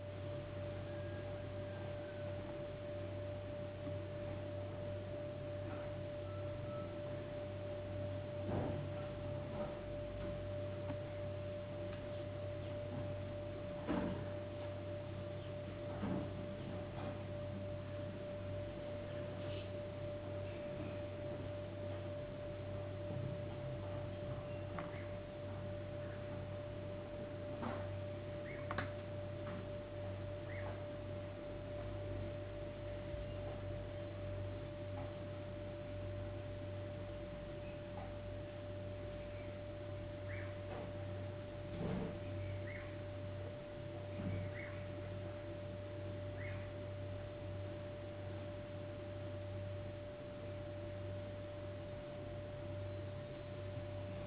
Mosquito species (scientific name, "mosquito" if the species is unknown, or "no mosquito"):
no mosquito